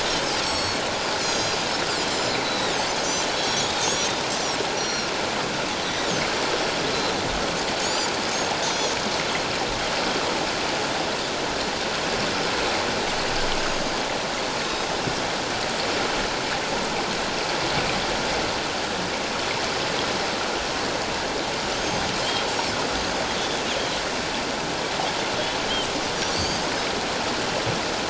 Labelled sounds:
0.4	1.6	Pacific white-sided dolphin, 4.0 to 7.8 kHz
2.1	2.8	Pacific white-sided dolphin, 3.5 to 7.4 kHz
3.3	4.1	Pacific white-sided dolphin, 3.2 to 5.9 kHz
4.4	5.1	Pacific white-sided dolphin, 4.1 to 6.2 kHz
5.8	6.1	Pacific white-sided dolphin, 3.5 to 4.0 kHz
7.8	8.9	Pacific white-sided dolphin, 4.3 to 7.3 kHz
14.6	14.9	Pacific white-sided dolphin, 3.7 to 3.8 kHz
26.3	26.6	Pacific white-sided dolphin, 4.2 to 4.8 kHz

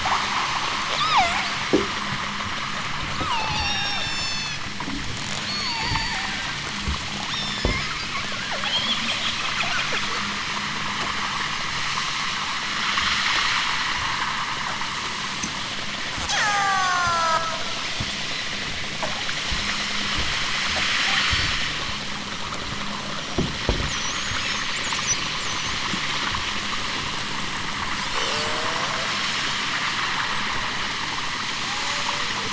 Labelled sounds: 0.9	1.4	killer whale, southern Alaska resident, 0.41 to 6.3 kHz
3.2	4.6	killer whale, southern Alaska resident, 0.55 to 8.0 kHz
5.4	6.3	killer whale, southern Alaska resident, 0.46 to 8.0 kHz
7.3	9.4	killer whale, southern Alaska resident, 0.73 to 7.8 kHz
16.2	17.6	killer whale, southern Alaska resident, 0.28 to 8.0 kHz
21.0	21.6	killer whale, southern Alaska resident, 0.37 to 4.8 kHz
31.6	32.5	killer whale, southern Alaska resident, 0.28 to 2.3 kHz

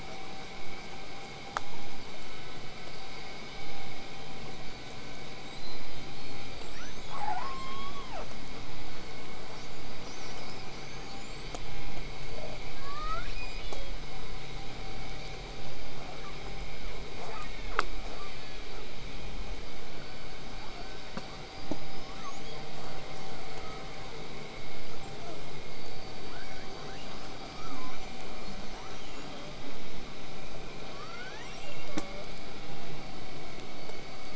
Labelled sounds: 5.4	8.2	killer whale, southern resident, whistle, 3.8 to 8.0 kHz
6.7	8.3	killer whale, southern resident, J pod, call S44, 0.36 to 5.3 kHz
9.5	11.7	killer whale, southern resident, whistle, 4.4 to 8.0 kHz
12.7	14.0	killer whale, southern resident, L pod, call S02iii, 0.92 to 7.6 kHz
15.9	18.9	killer whale, southern resident, L pod, call S40, 0.24 to 8.0 kHz
20.4	21.1	killer whale, southern resident, 0.65 to 1.7 kHz
21.3	22.6	killer whale, southern resident, L pod, call S19, 0.81 to 8.0 kHz
27.4	28.0	killer whale, southern resident, 0.88 to 8.0 kHz
28.6	29.6	killer whale, southern resident, L pod, call S02iii, 0.36 to 8.0 kHz
30.8	32.3	killer whale, southern resident, L pod, call S02iii, 0.46 to 8.0 kHz

